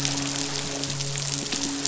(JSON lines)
{"label": "biophony, midshipman", "recorder": "SoundTrap 500"}